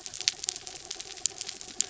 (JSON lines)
{"label": "anthrophony, mechanical", "recorder": "SoundTrap 300"}